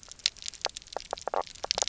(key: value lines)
label: biophony, knock croak
recorder: SoundTrap 300